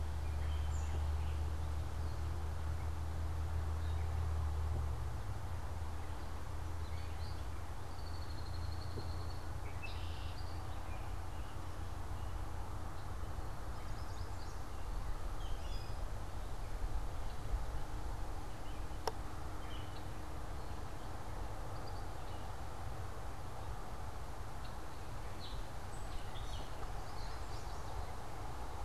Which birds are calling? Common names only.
Gray Catbird, Red-winged Blackbird, Yellow Warbler